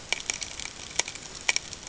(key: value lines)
label: ambient
recorder: HydroMoth